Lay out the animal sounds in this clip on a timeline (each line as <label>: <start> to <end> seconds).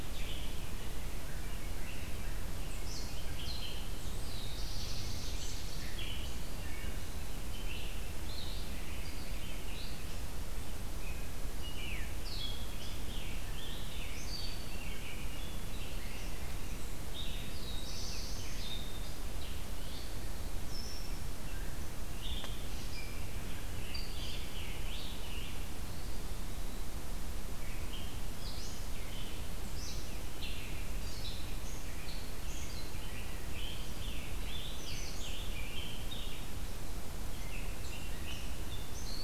Red-eyed Vireo (Vireo olivaceus): 0.0 to 39.2 seconds
Black-throated Blue Warbler (Setophaga caerulescens): 4.1 to 5.9 seconds
Scarlet Tanager (Piranga olivacea): 12.4 to 15.2 seconds
Black-throated Blue Warbler (Setophaga caerulescens): 16.9 to 19.0 seconds
Scarlet Tanager (Piranga olivacea): 22.2 to 25.7 seconds
Eastern Wood-Pewee (Contopus virens): 25.7 to 27.0 seconds
Scarlet Tanager (Piranga olivacea): 32.9 to 36.3 seconds